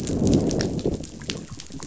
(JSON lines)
{"label": "biophony, growl", "recorder": "SoundTrap 500"}